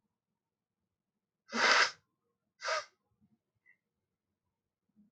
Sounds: Sniff